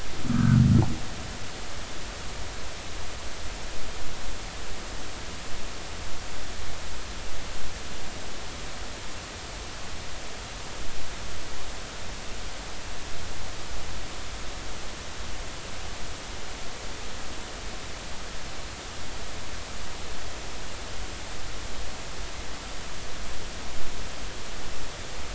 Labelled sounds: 0.3	0.6	humpback whale, 1.2 to 1.7 kHz

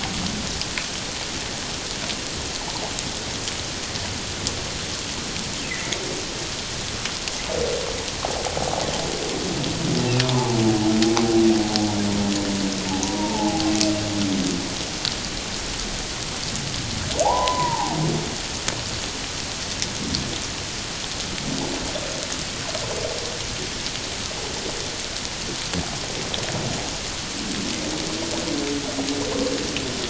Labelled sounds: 5.7	6.0	humpback whale, 1.8 to 2.2 kHz
8.6	8.8	humpback whale, 0.78 to 0.94 kHz
10.2	10.6	humpback whale, 0.78 to 1.1 kHz
13.0	13.7	humpback whale, 0.78 to 1.0 kHz
17.2	18.0	humpback whale, 0.78 to 1.1 kHz

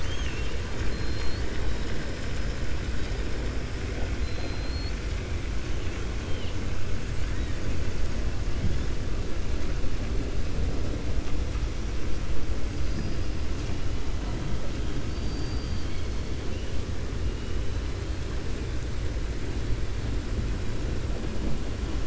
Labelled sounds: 4.1	5.0	killer whale, 3.3 to 4.9 kHz
15.0	16.3	killer whale, 2.2 to 5.6 kHz

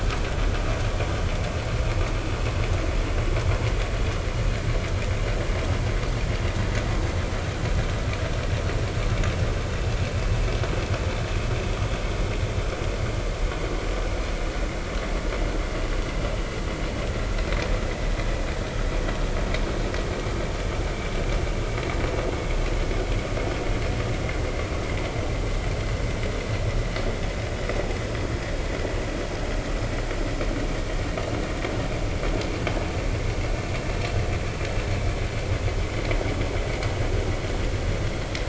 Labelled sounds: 28.1	28.4	vessel noise, 3.2 to 3.4 kHz

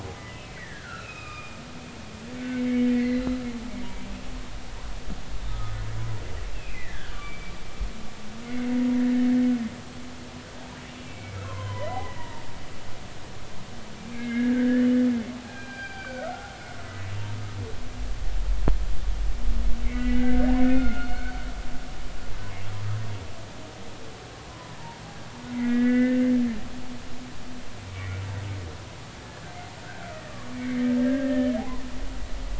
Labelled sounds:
0.1	1.6	humpback whale, 1.2 to 2.8 kHz
2.4	2.6	humpback whale, 1.5 to 1.6 kHz
2.9	3.4	humpback whale, 1.9 to 4.5 kHz
5.5	5.8	humpback whale, 1.2 to 1.3 kHz
6.5	7.5	humpback whale, 1.4 to 2.8 kHz
8.4	8.7	humpback whale, 2.0 to 2.3 kHz
9.0	9.3	humpback whale, 1.6 to 2.0 kHz
11.0	12.4	humpback whale, 0.86 to 3.3 kHz
14.0	14.9	humpback whale, 1.5 to 2.4 kHz
15.5	16.8	humpback whale, 1.2 to 4.8 kHz
19.8	21.3	humpback whale, 1.3 to 4.4 kHz
24.5	24.8	humpback whale, 0.96 to 1.1 kHz
25.5	26.2	humpback whale, 1.4 to 2.5 kHz
27.9	28.2	humpback whale, 2.1 to 2.4 kHz
29.8	31.6	humpback whale, 1.4 to 2.3 kHz

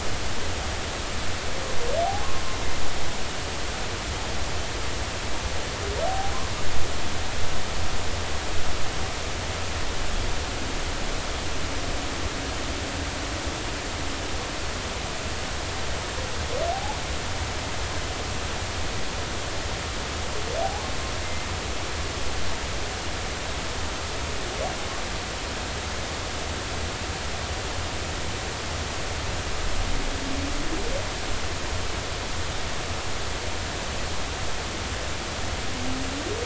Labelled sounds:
6.1	6.3	humpback whale, 0.80 to 0.86 kHz
16.7	17.0	humpback whale, 0.80 to 0.93 kHz
20.6	20.9	humpback whale, 0.80 to 0.99 kHz

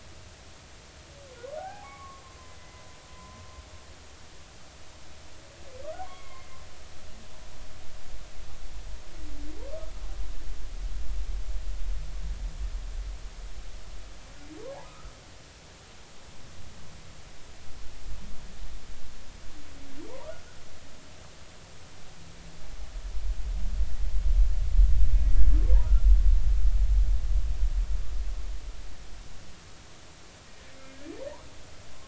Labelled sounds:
1.6	2.2	humpback whale, 0.80 to 2.3 kHz
2.6	3.4	humpback whale, 0.96 to 2.1 kHz
6.0	6.5	humpback whale, 0.93 to 2.2 kHz
14.8	15.1	humpback whale, 1.2 to 1.4 kHz
30.8	31.1	humpback whale, 1.6 to 1.8 kHz

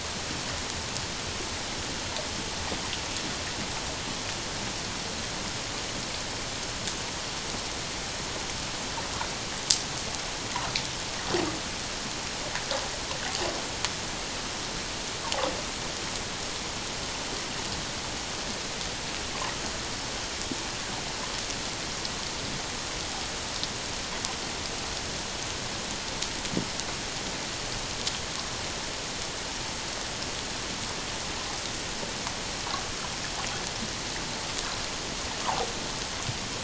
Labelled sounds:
35.4	35.7	water noise, 0.78 to 1.3 kHz

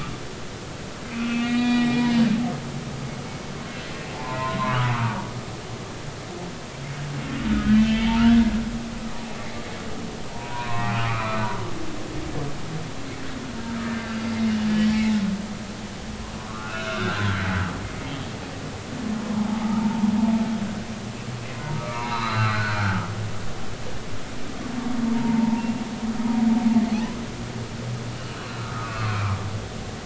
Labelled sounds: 1.1	2.1	humpback whale, 1.9 to 4.7 kHz
4.1	5.2	humpback whale, 0.83 to 1.4 kHz
7.5	8.3	humpback whale, 0.83 to 3.2 kHz
10.3	11.4	humpback whale, 0.90 to 2.5 kHz
13.9	14.2	humpback whale, 1.5 to 1.6 kHz
16.5	18.1	humpback whale, 1.1 to 3.6 kHz
19.3	19.9	humpback whale, 0.80 to 1.1 kHz
21.7	23.0	humpback whale, 0.80 to 4.3 kHz
25.1	25.6	humpback whale, 0.83 to 1.0 kHz
28.6	29.3	humpback whale, 0.99 to 2.7 kHz

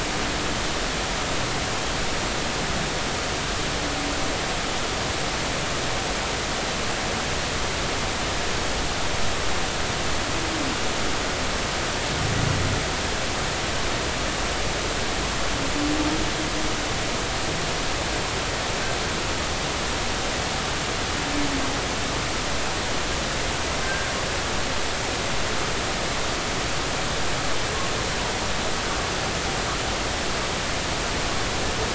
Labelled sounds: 23.8	24.1	humpback whale, 1.5 to 1.6 kHz

